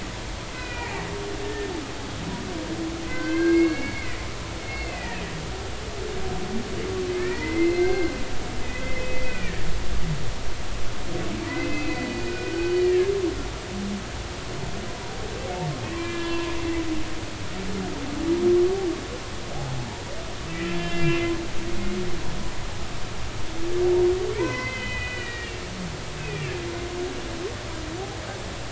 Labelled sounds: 0.5	1.7	humpback whale, 1.4 to 2.6 kHz
3.1	4.2	humpback whale, 1.5 to 4.5 kHz
4.6	5.2	humpback whale, 1.7 to 4.4 kHz
7.1	8.1	humpback whale, 1.7 to 4.2 kHz
8.8	9.7	humpback whale, 1.5 to 2.6 kHz
11.5	13.1	humpback whale, 1.4 to 5.0 kHz
16.0	16.5	humpback whale, 0.93 to 2.8 kHz
20.7	22.2	humpback whale, 1.6 to 5.2 kHz
24.3	25.6	humpback whale, 0.86 to 5.2 kHz
26.2	26.5	humpback whale, 2.1 to 2.7 kHz

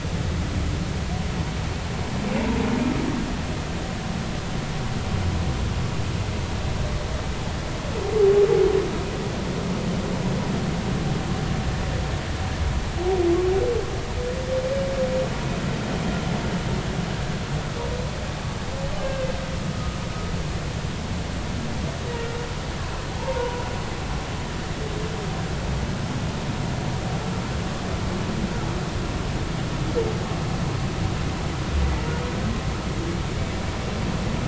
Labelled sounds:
19.0	19.2	humpback whale, 1.5 to 1.7 kHz
22.1	22.3	humpback whale, 2.8 to 2.9 kHz
23.2	23.7	humpback whale, 0.83 to 1.1 kHz

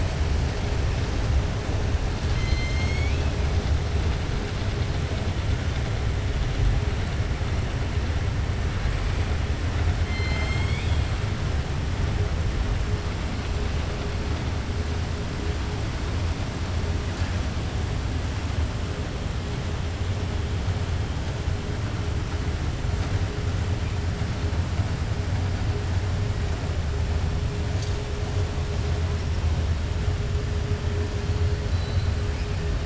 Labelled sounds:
2.2	3.3	killer whale, 2.1 to 7.5 kHz
10.0	11.1	killer whale, 0.69 to 7.7 kHz

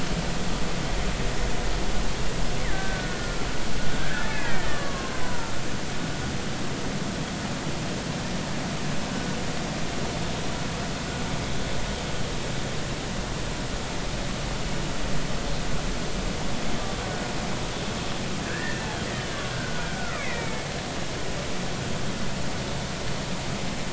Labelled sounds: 2.7	5.5	killer whale, Bigg's (transient), 0.90 to 2.4 kHz
18.4	19.4	killer whale, Bigg's (transient), 1.5 to 3.1 kHz
19.8	20.7	killer whale, Bigg's (transient), 1.1 to 2.6 kHz

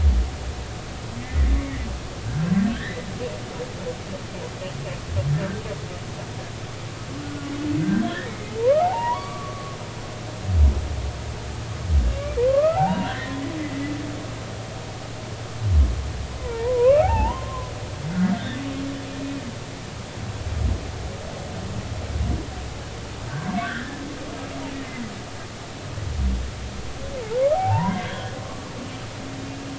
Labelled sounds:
1.6	3.1	humpback whale, 1.5 to 2.3 kHz
7.2	9.8	humpback whale, 0.80 to 2.4 kHz
12.4	13.4	humpback whale, 0.80 to 2.9 kHz
16.4	17.7	humpback whale, 0.80 to 2.8 kHz
23.3	24.0	humpback whale, 1.4 to 1.9 kHz
27.5	28.7	humpback whale, 0.80 to 3.4 kHz

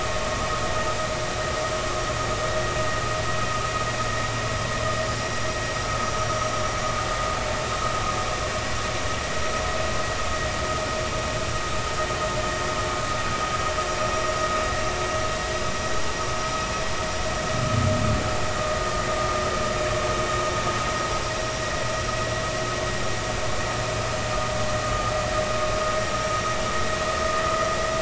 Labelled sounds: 24.8	25.1	vessel noise, 1.2 to 1.3 kHz
26.0	26.3	vessel noise, 5.5 to 5.7 kHz

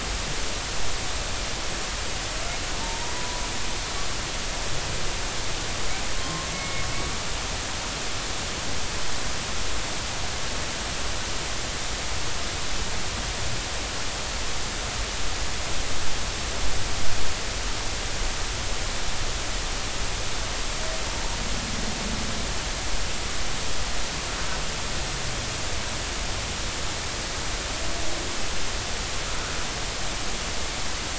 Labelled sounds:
2.8	3.4	humpback whale, 0.86 to 1.0 kHz
6.1	6.9	humpback whale, 1.0 to 2.2 kHz

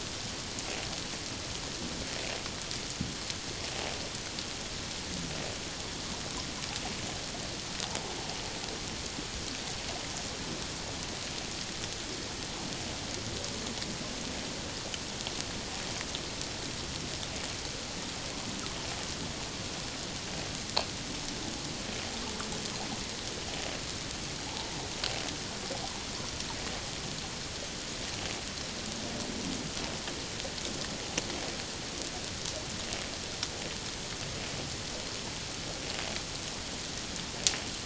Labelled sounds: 24.5	24.8	water noise, 0.78 to 1.1 kHz

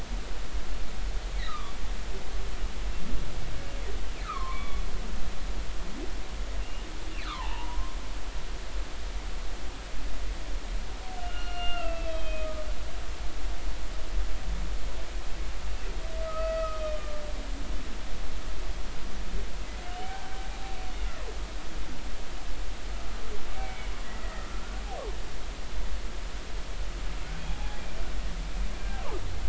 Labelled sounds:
1.5	1.7	humpback whale, 0.93 to 1.4 kHz
2.4	2.6	humpback whale, 3.6 to 4.3 kHz
4.2	4.8	humpback whale, 0.86 to 3.5 kHz
6.6	6.9	humpback whale, 2.7 to 2.9 kHz
7.2	8.0	humpback whale, 0.80 to 3.0 kHz
11.2	12.7	humpback whale, 1.1 to 3.3 kHz
16.2	17.7	humpback whale, 1.2 to 4.6 kHz
19.8	20.3	humpback whale, 0.80 to 3.1 kHz
23.5	23.9	humpback whale, 2.1 to 2.4 kHz
27.5	27.8	humpback whale, 0.80 to 0.96 kHz

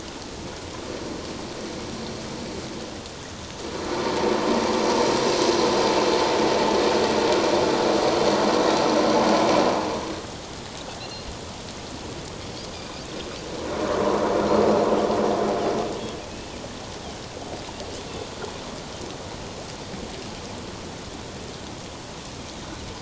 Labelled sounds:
11.0	11.3	Pacific white-sided dolphin, 2.6 to 4.3 kHz

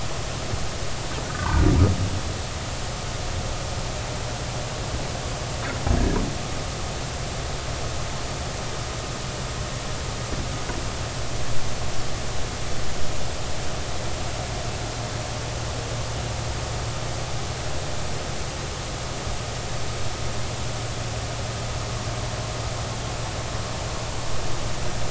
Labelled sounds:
1.2	1.7	humpback whale, 0.83 to 1.6 kHz

